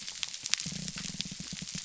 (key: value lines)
label: biophony
recorder: SoundTrap 300